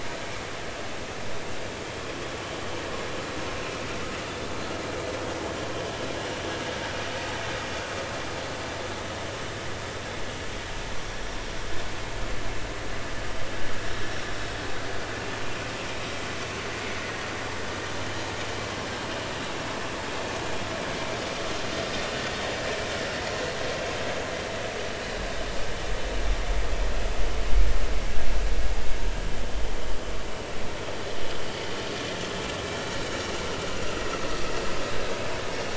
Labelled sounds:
11.0	11.3	vessel noise, 5.5 to 5.8 kHz

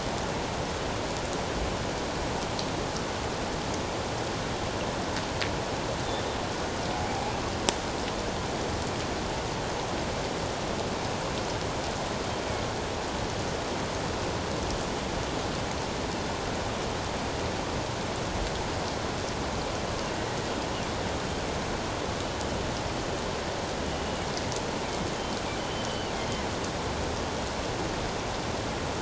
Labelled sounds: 25.9	26.1	killer whale, northern resident, G clan, call N23ii, 2.7 to 3.1 kHz

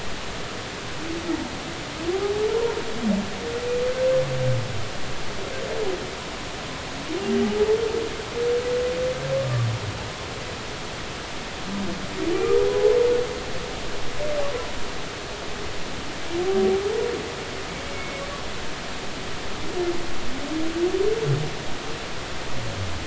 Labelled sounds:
17.9	18.2	humpback whale, 2.1 to 2.3 kHz

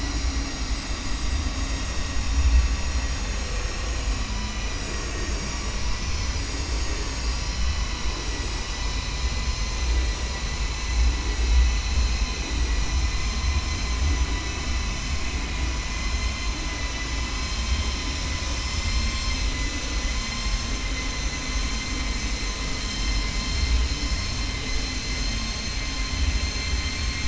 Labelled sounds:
21.1	21.8	vessel noise, 5.8 to 7.1 kHz

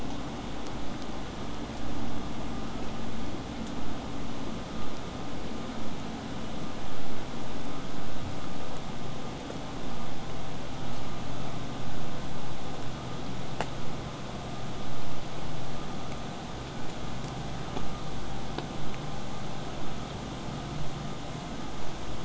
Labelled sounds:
16.8	21.8	vessel noise, 0 to 8.0 kHz

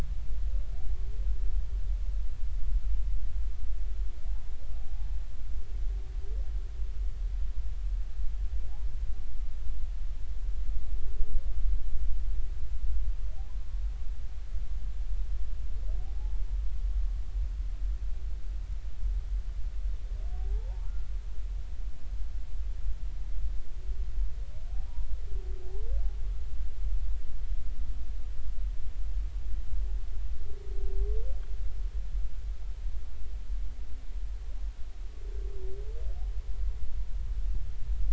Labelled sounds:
4.9	5.2	humpback whale, 0.80 to 0.93 kHz
16.0	16.4	humpback whale, 0.80 to 0.93 kHz
20.4	20.9	humpback whale, 0.80 to 1.0 kHz

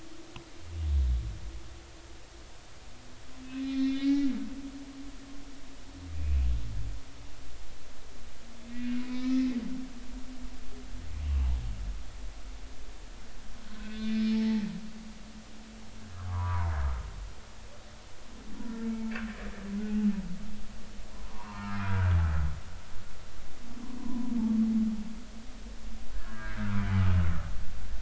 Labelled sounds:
3.6	4.3	humpback whale, 1.6 to 3.9 kHz
6.2	6.5	humpback whale, 2.2 to 2.6 kHz
8.6	9.5	humpback whale, 1.7 to 2.7 kHz
11.2	11.5	humpback whale, 2.5 to 3.0 kHz
13.6	14.7	humpback whale, 0.83 to 5.4 kHz
16.1	16.7	humpback whale, 0.90 to 1.4 kHz
18.8	20.1	humpback whale, 0.80 to 2.3 kHz
21.2	22.2	humpback whale, 0.80 to 1.6 kHz
24.0	24.3	humpback whale, 0.93 to 1.1 kHz
26.1	26.9	humpback whale, 0.99 to 1.8 kHz

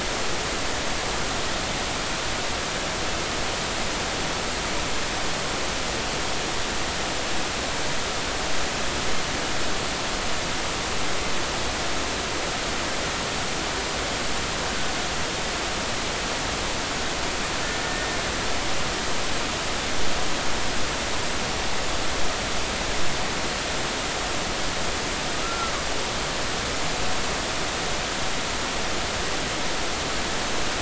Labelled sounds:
17.6	18.2	killer whale, Bigg's (transient), 1.7 to 1.9 kHz
25.4	25.7	killer whale, Bigg's (transient), 1.3 to 1.4 kHz

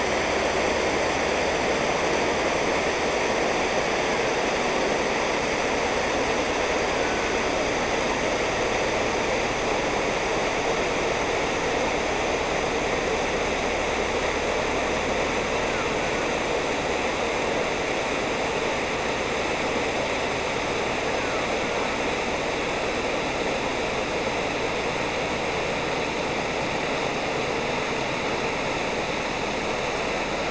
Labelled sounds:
3.8	4.4	killer whale, Bigg's (transient), 0.81 to 2.2 kHz
6.7	7.6	killer whale, Bigg's (transient), 0.63 to 2.9 kHz
15.5	16.5	killer whale, Bigg's (transient), 0.49 to 2.1 kHz
21.0	22.0	killer whale, Bigg's (transient), 0.72 to 2.2 kHz

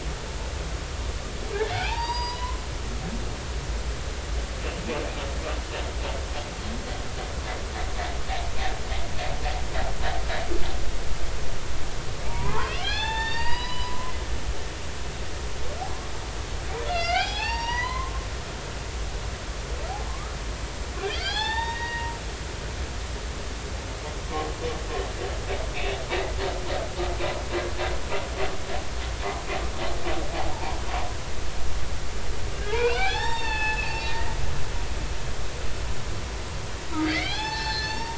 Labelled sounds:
1.7	2.6	humpback whale, 0.80 to 5.0 kHz
12.2	14.1	humpback whale, 0.80 to 5.0 kHz
16.9	18.1	humpback whale, 0.80 to 6.1 kHz
20.1	22.1	humpback whale, 0.80 to 5.1 kHz
30.3	30.8	humpback whale, 0.80 to 1.1 kHz
32.6	35.1	humpback whale, 0.80 to 7.5 kHz
37.0	38.1	humpback whale, 0.80 to 6.4 kHz

